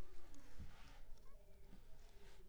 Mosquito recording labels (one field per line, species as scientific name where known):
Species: Culex pipiens complex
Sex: female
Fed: unfed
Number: one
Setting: cup